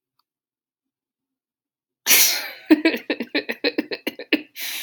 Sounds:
Laughter